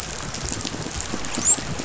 {"label": "biophony, dolphin", "recorder": "SoundTrap 500"}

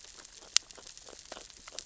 {"label": "biophony, grazing", "recorder": "SoundTrap 600 or HydroMoth"}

